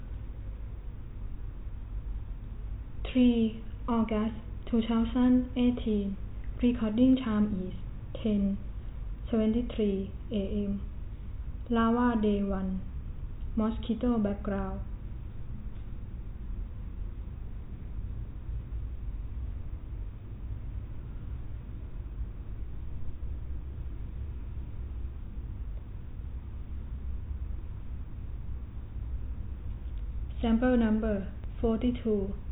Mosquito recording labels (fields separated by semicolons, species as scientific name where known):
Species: no mosquito; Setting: cup